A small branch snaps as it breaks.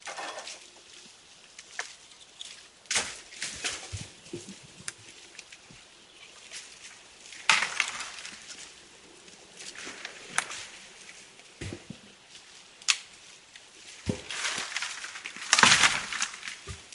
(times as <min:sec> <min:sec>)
0:12.8 0:13.3